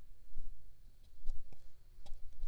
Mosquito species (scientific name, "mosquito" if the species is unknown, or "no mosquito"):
Aedes aegypti